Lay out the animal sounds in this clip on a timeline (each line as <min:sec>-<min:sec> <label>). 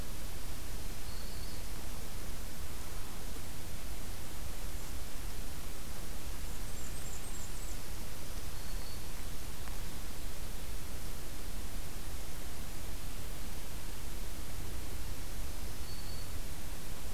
0:00.6-0:01.7 Black-throated Green Warbler (Setophaga virens)
0:06.1-0:07.9 Blackburnian Warbler (Setophaga fusca)
0:08.1-0:09.1 Black-throated Green Warbler (Setophaga virens)
0:15.0-0:16.3 Black-throated Green Warbler (Setophaga virens)